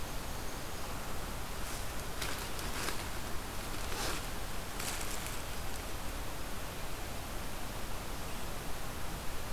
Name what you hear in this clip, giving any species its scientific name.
forest ambience